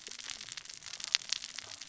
{"label": "biophony, cascading saw", "recorder": "SoundTrap 600 or HydroMoth"}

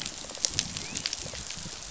{"label": "biophony, rattle response", "recorder": "SoundTrap 500"}
{"label": "biophony, dolphin", "recorder": "SoundTrap 500"}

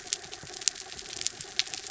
{"label": "anthrophony, mechanical", "recorder": "SoundTrap 300"}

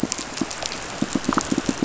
{"label": "biophony, pulse", "recorder": "SoundTrap 500"}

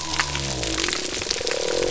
{"label": "biophony", "recorder": "SoundTrap 300"}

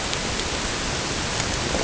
{"label": "ambient", "recorder": "HydroMoth"}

